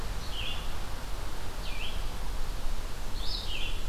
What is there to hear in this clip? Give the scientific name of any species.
Vireo olivaceus, Mniotilta varia